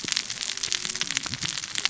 {"label": "biophony, cascading saw", "recorder": "SoundTrap 600 or HydroMoth"}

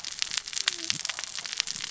{"label": "biophony, cascading saw", "recorder": "SoundTrap 600 or HydroMoth"}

